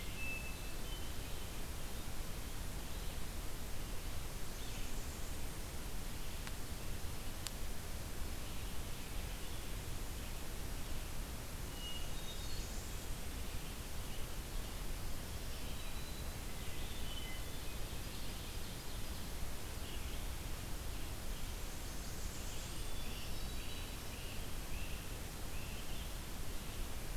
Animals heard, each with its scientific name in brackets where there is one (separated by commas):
Blackburnian Warbler (Setophaga fusca), Hermit Thrush (Catharus guttatus), Red-eyed Vireo (Vireo olivaceus), Black-throated Green Warbler (Setophaga virens), Great Crested Flycatcher (Myiarchus crinitus), Ovenbird (Seiurus aurocapilla)